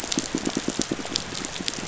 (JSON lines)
{"label": "biophony, pulse", "recorder": "SoundTrap 500"}